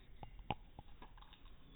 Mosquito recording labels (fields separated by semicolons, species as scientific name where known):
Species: no mosquito; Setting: cup